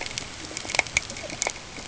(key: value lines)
label: ambient
recorder: HydroMoth